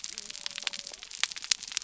{"label": "biophony", "recorder": "SoundTrap 300"}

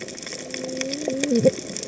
{"label": "biophony, cascading saw", "recorder": "HydroMoth"}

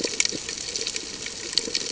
{"label": "ambient", "recorder": "HydroMoth"}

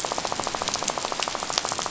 {"label": "biophony, rattle", "recorder": "SoundTrap 500"}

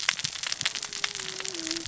{"label": "biophony, cascading saw", "recorder": "SoundTrap 600 or HydroMoth"}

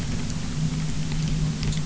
{"label": "anthrophony, boat engine", "recorder": "SoundTrap 300"}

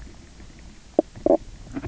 {"label": "biophony, knock croak", "recorder": "SoundTrap 300"}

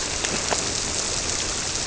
{"label": "biophony", "recorder": "SoundTrap 300"}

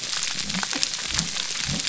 {"label": "biophony", "recorder": "SoundTrap 300"}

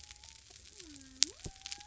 {"label": "biophony", "recorder": "SoundTrap 300"}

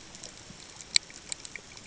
{"label": "ambient", "recorder": "HydroMoth"}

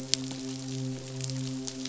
{"label": "biophony, midshipman", "recorder": "SoundTrap 500"}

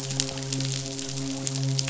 {"label": "biophony, midshipman", "recorder": "SoundTrap 500"}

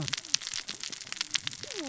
{"label": "biophony, cascading saw", "recorder": "SoundTrap 600 or HydroMoth"}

